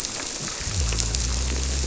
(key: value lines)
label: biophony
recorder: SoundTrap 300